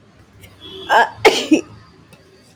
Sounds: Sneeze